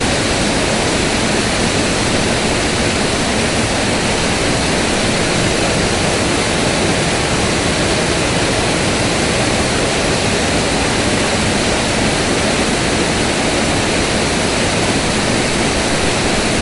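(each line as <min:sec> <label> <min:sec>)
0:00.0 Loud rustling and rushing water. 0:16.6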